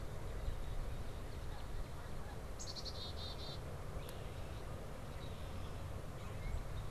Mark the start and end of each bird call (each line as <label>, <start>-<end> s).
Northern Cardinal (Cardinalis cardinalis), 0.4-1.9 s
Canada Goose (Branta canadensis), 2.2-2.5 s
Black-capped Chickadee (Poecile atricapillus), 2.5-3.6 s
Red-winged Blackbird (Agelaius phoeniceus), 3.9-4.4 s
Red-winged Blackbird (Agelaius phoeniceus), 5.0-6.9 s